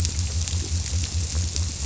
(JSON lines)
{"label": "biophony", "recorder": "SoundTrap 300"}